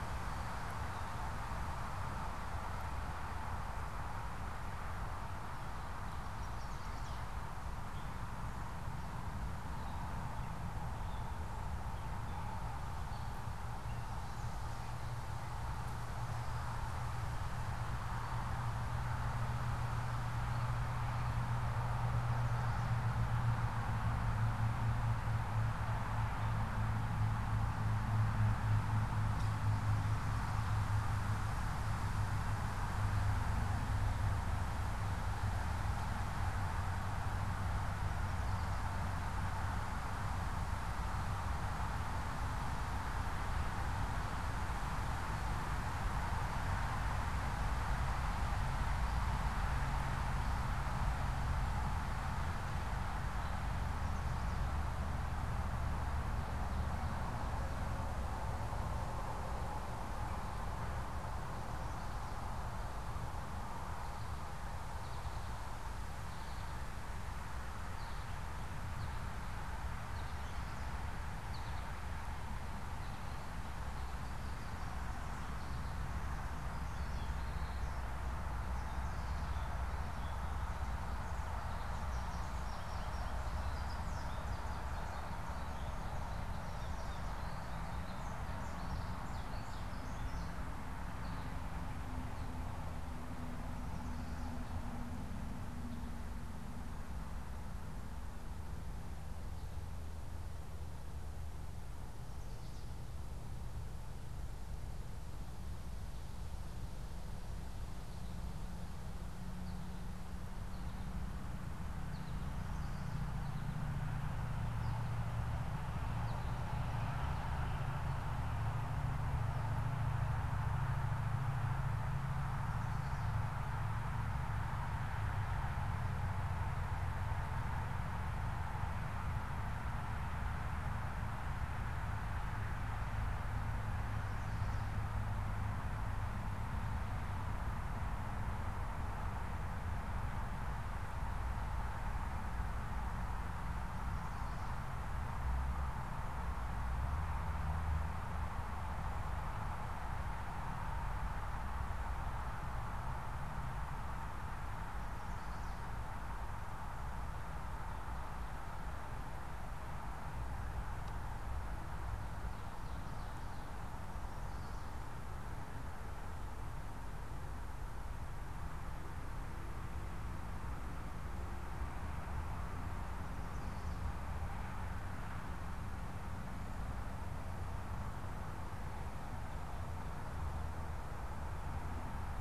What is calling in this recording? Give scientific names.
Setophaga pensylvanica, Dumetella carolinensis, Spinus tristis